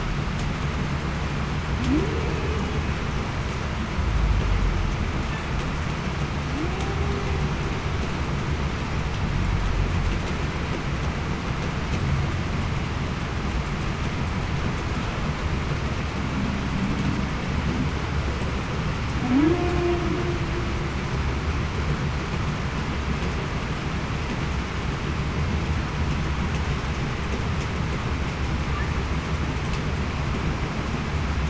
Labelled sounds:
1.8	2.3	humpback whale, 0.23 to 0.52 kHz
19.2	19.8	humpback whale, 0.23 to 0.38 kHz

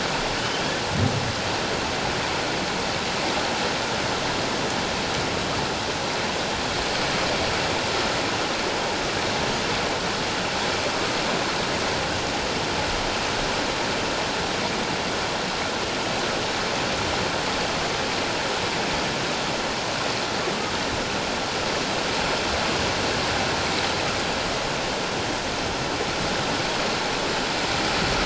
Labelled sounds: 0.4	0.6	humpback whale, 2.9 to 3.2 kHz

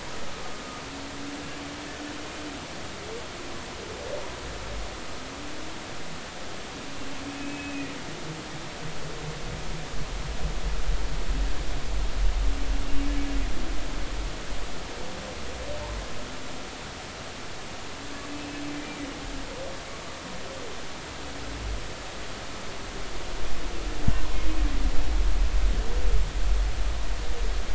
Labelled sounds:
7.3	7.9	humpback whale, 2.4 to 2.6 kHz
18.3	18.6	humpback whale, 2.6 to 2.7 kHz

